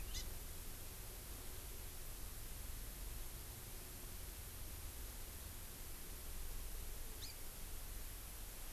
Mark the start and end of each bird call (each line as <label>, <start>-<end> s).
Hawaii Amakihi (Chlorodrepanis virens), 0.1-0.2 s